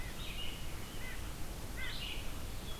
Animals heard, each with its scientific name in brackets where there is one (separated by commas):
White-breasted Nuthatch (Sitta carolinensis), Blue-headed Vireo (Vireo solitarius)